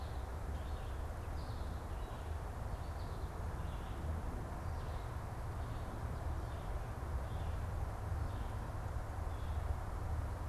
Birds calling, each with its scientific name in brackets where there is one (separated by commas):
American Goldfinch (Spinus tristis), Red-eyed Vireo (Vireo olivaceus)